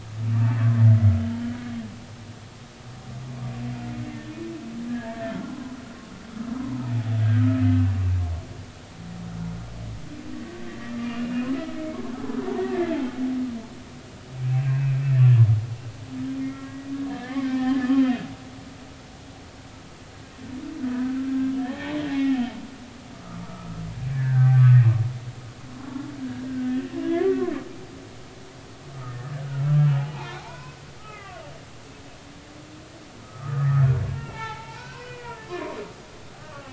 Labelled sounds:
4.1	4.3	humpback whale, 1.8 to 1.9 kHz
4.9	5.8	humpback whale, 0.96 to 1.9 kHz
7.2	7.6	humpback whale, 1.2 to 1.7 kHz
10.7	12.1	humpback whale, 1.2 to 2.9 kHz
12.7	13.0	humpback whale, 1.6 to 1.8 kHz
14.7	15.0	humpback whale, 2.3 to 2.7 kHz
16.4	17.8	humpback whale, 1.6 to 2.3 kHz
20.8	21.2	humpback whale, 1.4 to 1.6 kHz
21.6	23.8	humpback whale, 0.80 to 2.3 kHz
24.1	24.8	humpback whale, 0.99 to 1.9 kHz
26.7	27.5	humpback whale, 0.96 to 2.0 kHz
29.1	29.3	humpback whale, 1.7 to 1.9 kHz
29.9	31.4	humpback whale, 0.80 to 4.1 kHz
33.2	36.7	humpback whale, 0.80 to 3.0 kHz

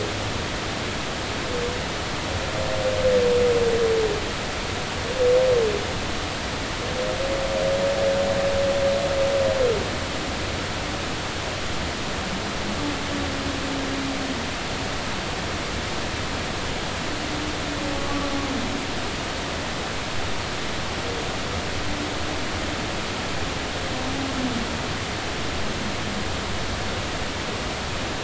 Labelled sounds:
18.0	18.3	humpback whale, 1.1 to 1.2 kHz

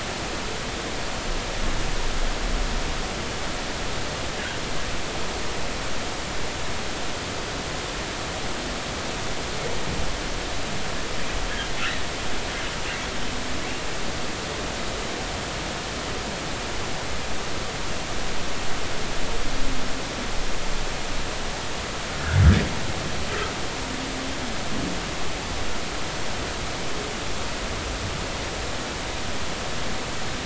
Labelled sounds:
22.2	22.4	humpback whale, 1.3 to 1.8 kHz

